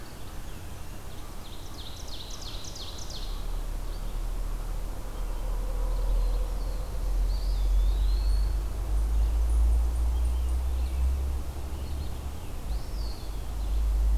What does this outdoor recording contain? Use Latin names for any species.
Seiurus aurocapilla, Setophaga caerulescens, Contopus virens